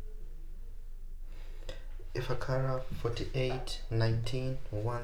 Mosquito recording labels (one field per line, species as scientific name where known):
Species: Culex pipiens complex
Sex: female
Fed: unfed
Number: one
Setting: cup